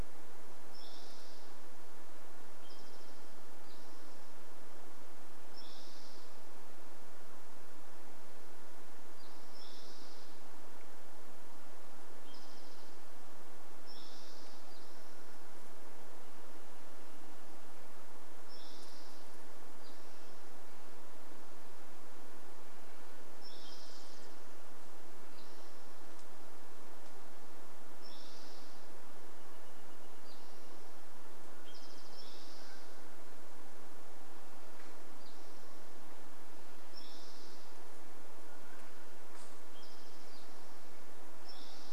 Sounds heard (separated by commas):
Wrentit song, Mountain Quail call, unidentified sound, Spotted Towhee song